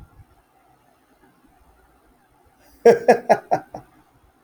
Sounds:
Laughter